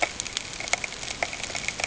{"label": "ambient", "recorder": "HydroMoth"}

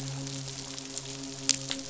{"label": "biophony, midshipman", "recorder": "SoundTrap 500"}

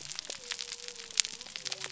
{"label": "biophony", "recorder": "SoundTrap 300"}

